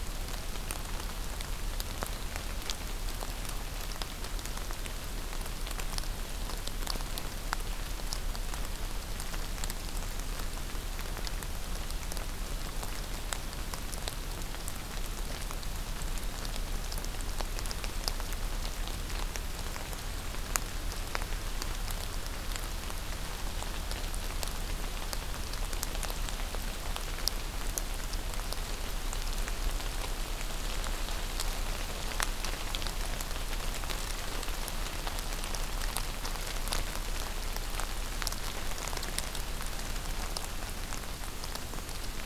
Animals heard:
forest ambience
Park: Acadia National Park